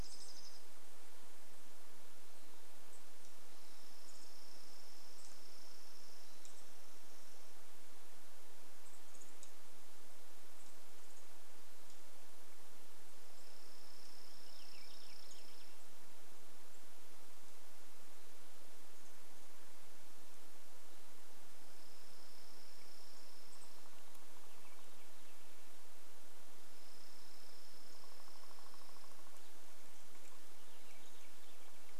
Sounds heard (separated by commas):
Warbling Vireo song, unidentified sound, woodpecker drumming, Chipping Sparrow song, unidentified bird chip note